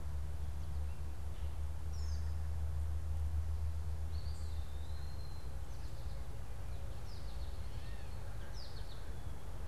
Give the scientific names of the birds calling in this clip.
Turdus migratorius, Contopus virens, Spinus tristis, Dumetella carolinensis